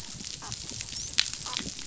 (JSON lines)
{"label": "biophony, dolphin", "recorder": "SoundTrap 500"}